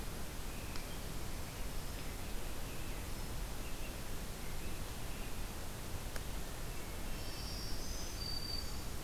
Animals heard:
Black-throated Green Warbler (Setophaga virens), American Robin (Turdus migratorius)

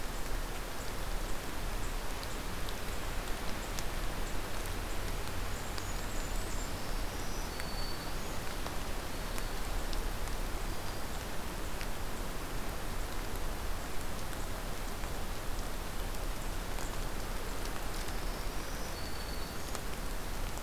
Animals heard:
Blackburnian Warbler (Setophaga fusca), Black-throated Green Warbler (Setophaga virens)

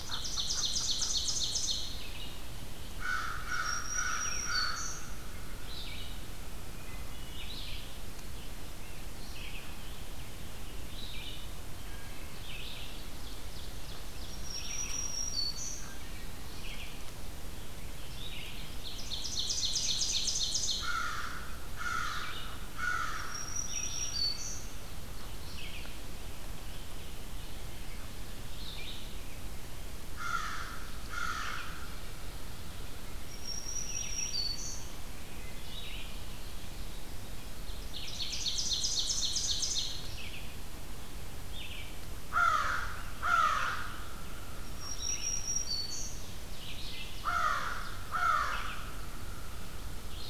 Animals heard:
Ovenbird (Seiurus aurocapilla), Red-eyed Vireo (Vireo olivaceus), American Crow (Corvus brachyrhynchos), Black-throated Green Warbler (Setophaga virens), Wood Thrush (Hylocichla mustelina)

